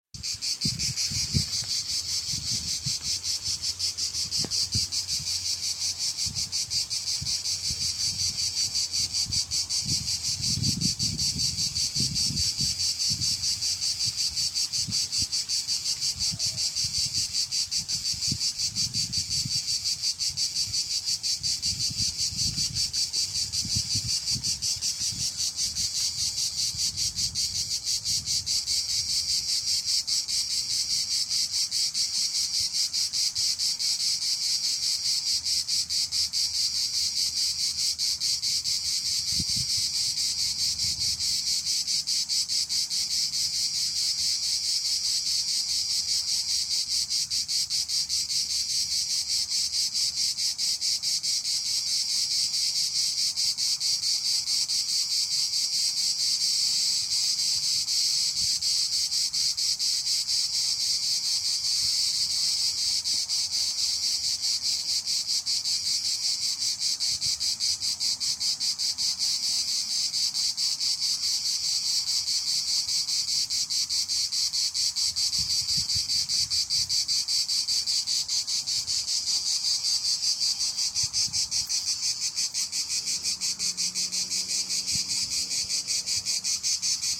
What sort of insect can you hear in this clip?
cicada